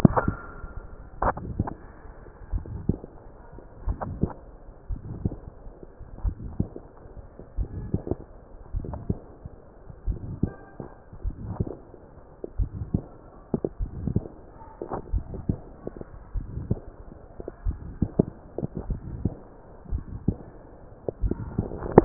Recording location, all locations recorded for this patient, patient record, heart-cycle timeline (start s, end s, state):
tricuspid valve (TV)
aortic valve (AV)+pulmonary valve (PV)+tricuspid valve (TV)+mitral valve (MV)
#Age: Adolescent
#Sex: Male
#Height: 148.0 cm
#Weight: 35.2 kg
#Pregnancy status: False
#Murmur: Present
#Murmur locations: aortic valve (AV)+mitral valve (MV)+pulmonary valve (PV)+tricuspid valve (TV)
#Most audible location: pulmonary valve (PV)
#Systolic murmur timing: Holosystolic
#Systolic murmur shape: Diamond
#Systolic murmur grading: III/VI or higher
#Systolic murmur pitch: Medium
#Systolic murmur quality: Harsh
#Diastolic murmur timing: Early-diastolic
#Diastolic murmur shape: Decrescendo
#Diastolic murmur grading: III/IV or IV/IV
#Diastolic murmur pitch: Medium
#Diastolic murmur quality: Blowing
#Outcome: Abnormal
#Campaign: 2014 screening campaign
0.00	0.80	unannotated
0.80	1.22	diastole
1.22	1.34	S1
1.34	1.58	systole
1.58	1.68	S2
1.68	2.52	diastole
2.52	2.64	S1
2.64	2.88	systole
2.88	2.98	S2
2.98	3.86	diastole
3.86	3.98	S1
3.98	4.20	systole
4.20	4.30	S2
4.30	4.90	diastole
4.90	5.00	S1
5.00	5.24	systole
5.24	5.34	S2
5.34	6.22	diastole
6.22	6.36	S1
6.36	6.58	systole
6.58	6.68	S2
6.68	7.58	diastole
7.58	7.68	S1
7.68	7.92	systole
7.92	8.02	S2
8.02	8.74	diastole
8.74	8.88	S1
8.88	9.08	systole
9.08	9.18	S2
9.18	10.06	diastole
10.06	10.20	S1
10.20	10.42	systole
10.42	10.52	S2
10.52	11.24	diastole
11.24	11.36	S1
11.36	11.58	systole
11.58	11.68	S2
11.68	12.58	diastole
12.58	12.70	S1
12.70	12.92	systole
12.92	13.04	S2
13.04	13.80	diastole
13.80	13.92	S1
13.92	14.14	systole
14.14	14.24	S2
14.24	15.12	diastole
15.12	15.24	S1
15.24	15.48	systole
15.48	15.58	S2
15.58	16.34	diastole
16.34	16.48	S1
16.48	16.68	systole
16.68	16.78	S2
16.78	17.64	diastole
17.64	17.78	S1
17.78	18.02	systole
18.02	18.10	S2
18.10	18.88	diastole
18.88	19.00	S1
19.00	19.22	systole
19.22	19.32	S2
19.32	19.92	diastole
19.92	20.04	S1
20.04	20.26	systole
20.26	20.38	S2
20.38	21.22	diastole
21.22	22.05	unannotated